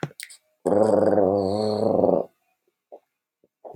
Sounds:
Throat clearing